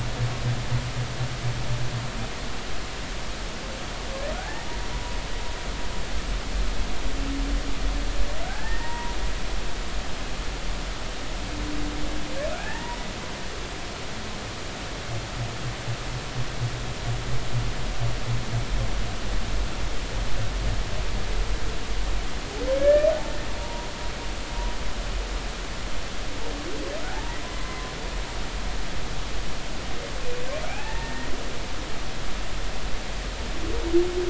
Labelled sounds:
4.3	4.7	humpback whale, 0.80 to 1.9 kHz
8.4	9.2	humpback whale, 0.90 to 2.0 kHz
12.6	13.0	humpback whale, 0.80 to 2.0 kHz
22.8	23.1	humpback whale, 1.6 to 2.5 kHz
23.6	23.9	humpback whale, 0.90 to 0.99 kHz
27.1	27.9	humpback whale, 0.80 to 2.1 kHz
30.7	31.3	humpback whale, 0.80 to 2.7 kHz

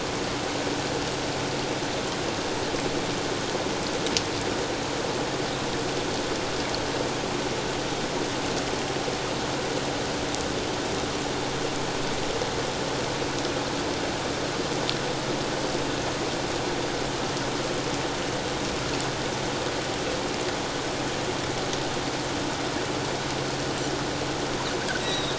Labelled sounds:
25.0	25.3	Pacific white-sided dolphin, 3.5 to 4.0 kHz

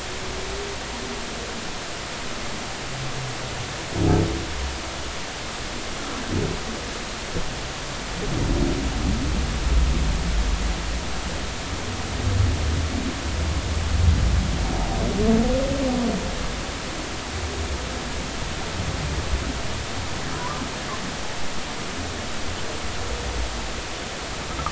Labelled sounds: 20.3	20.6	humpback whale, 0.93 to 1.2 kHz

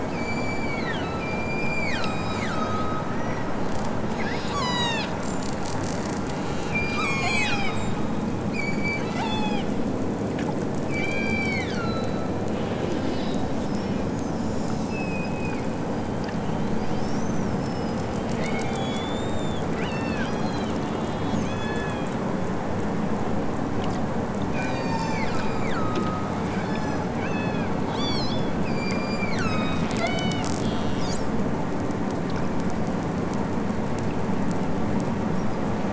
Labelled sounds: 0.1	5.2	killer whale, southern Alaska resident, 0.64 to 8.0 kHz
6.7	7.9	killer whale, southern Alaska resident, 0.41 to 8.0 kHz
8.5	9.7	killer whale, southern Alaska resident, 0.55 to 8.0 kHz
10.8	13.5	killer whale, southern Alaska resident, 1.1 to 7.0 kHz
14.8	15.8	killer whale, southern Alaska resident, 1.6 to 8.0 kHz
16.8	17.2	killer whale, southern Alaska resident, 2.9 to 8.0 kHz
18.4	19.1	killer whale, southern Alaska resident, 1.7 to 6.5 kHz
19.7	22.2	killer whale, southern Alaska resident, 1.0 to 7.2 kHz
24.5	28.3	killer whale, southern Alaska resident, 0.55 to 8.0 kHz
28.6	30.4	killer whale, southern Alaska resident, 1.1 to 7.4 kHz

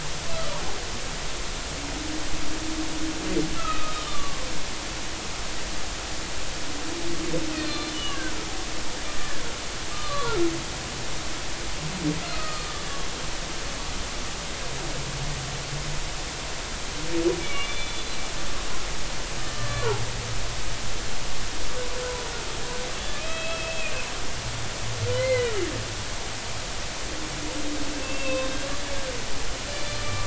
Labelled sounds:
0.3	0.6	humpback whale, 1.1 to 1.3 kHz
3.6	4.4	humpback whale, 1.1 to 2.6 kHz
7.6	8.3	humpback whale, 1.4 to 4.4 kHz
9.9	10.3	humpback whale, 1.1 to 4.3 kHz
12.3	12.8	humpback whale, 1.1 to 4.4 kHz
17.4	18.1	humpback whale, 2.2 to 3.6 kHz
19.6	19.9	humpback whale, 1.7 to 1.8 kHz
20.5	20.9	humpback whale, 1.1 to 1.2 kHz
23.1	23.9	humpback whale, 2.4 to 2.7 kHz
25.1	25.6	humpback whale, 1.8 to 4.2 kHz
27.9	28.7	humpback whale, 0.99 to 3.8 kHz
29.7	30.2	humpback whale, 1.1 to 4.8 kHz

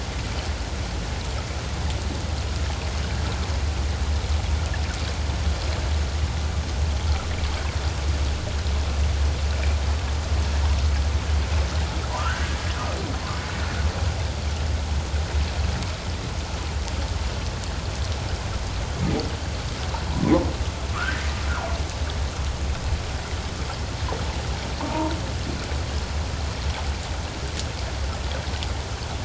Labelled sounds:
12.2	12.5	humpback whale, 1.1 to 1.7 kHz
24.8	25.1	humpback whale, 0.84 to 1.1 kHz

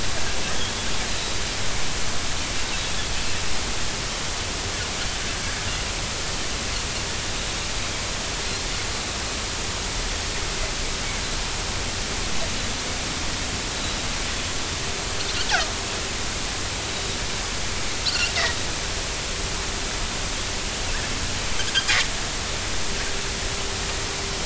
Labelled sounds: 0.0	0.3	Pacific white-sided dolphin, 3.0 to 3.3 kHz
18.1	18.3	Pacific white-sided dolphin, 1.3 to 1.5 kHz

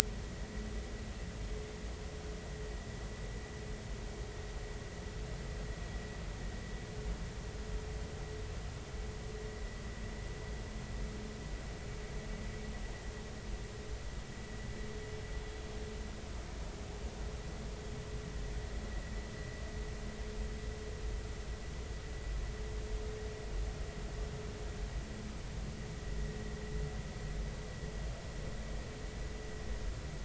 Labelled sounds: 0.2	0.5	vessel noise, 1.8 to 2.0 kHz

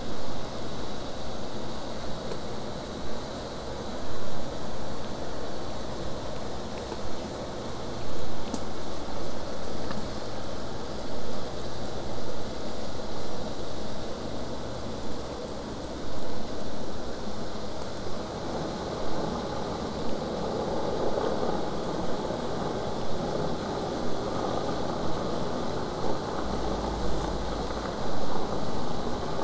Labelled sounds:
18.0	23.0	vessel noise, 0.08 to 8.0 kHz

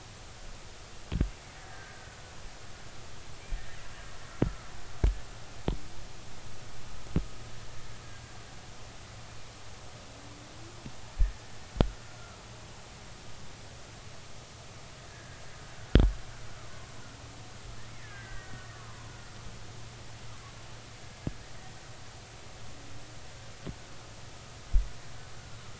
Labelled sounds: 1.6	2.2	killer whale, Bigg's (transient), 1.4 to 1.8 kHz
3.5	3.8	killer whale, Bigg's (transient), 1.7 to 1.9 kHz
15.1	15.4	killer whale, Bigg's (transient), 1.6 to 1.8 kHz
16.7	17.0	killer whale, Bigg's (transient), 0.99 to 1.2 kHz
17.9	19.3	killer whale, Bigg's (transient), 0.93 to 2.3 kHz

